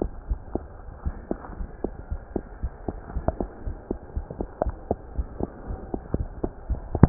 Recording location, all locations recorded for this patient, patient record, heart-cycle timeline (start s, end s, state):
aortic valve (AV)
aortic valve (AV)+pulmonary valve (PV)+tricuspid valve (TV)+mitral valve (MV)
#Age: Child
#Sex: Female
#Height: 92.0 cm
#Weight: 13.6 kg
#Pregnancy status: False
#Murmur: Absent
#Murmur locations: nan
#Most audible location: nan
#Systolic murmur timing: nan
#Systolic murmur shape: nan
#Systolic murmur grading: nan
#Systolic murmur pitch: nan
#Systolic murmur quality: nan
#Diastolic murmur timing: nan
#Diastolic murmur shape: nan
#Diastolic murmur grading: nan
#Diastolic murmur pitch: nan
#Diastolic murmur quality: nan
#Outcome: Abnormal
#Campaign: 2015 screening campaign
0.00	1.02	unannotated
1.02	1.18	S1
1.18	1.28	systole
1.28	1.40	S2
1.40	1.58	diastole
1.58	1.68	S1
1.68	1.82	systole
1.82	1.96	S2
1.96	2.10	diastole
2.10	2.22	S1
2.22	2.34	systole
2.34	2.44	S2
2.44	2.60	diastole
2.60	2.72	S1
2.72	2.86	systole
2.86	3.00	S2
3.00	3.14	diastole
3.14	3.26	S1
3.26	3.38	systole
3.38	3.50	S2
3.50	3.64	diastole
3.64	3.78	S1
3.78	3.88	systole
3.88	4.00	S2
4.00	4.14	diastole
4.14	4.26	S1
4.26	4.37	systole
4.37	4.50	S2
4.50	4.63	diastole
4.63	4.78	S1
4.78	4.88	systole
4.88	4.98	S2
4.98	5.16	diastole
5.16	5.30	S1
5.30	5.38	systole
5.38	5.48	S2
5.48	5.66	diastole
5.66	5.80	S1
5.80	5.91	systole
5.91	6.04	S2
6.04	6.18	diastole
6.18	6.32	S1
6.32	6.42	systole
6.42	6.52	S2
6.52	6.67	diastole
6.67	6.80	S1
6.80	7.09	unannotated